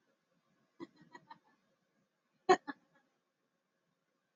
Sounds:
Laughter